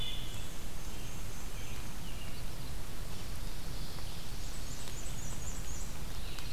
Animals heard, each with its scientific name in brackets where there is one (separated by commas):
Black-and-white Warbler (Mniotilta varia)